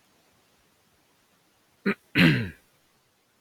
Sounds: Throat clearing